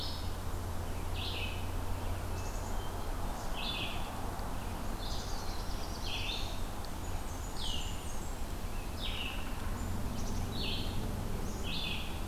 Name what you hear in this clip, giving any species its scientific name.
Vireo olivaceus, Poecile atricapillus, Setophaga caerulescens, Setophaga fusca